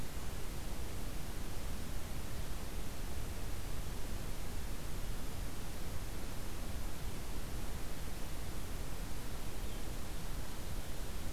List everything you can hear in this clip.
forest ambience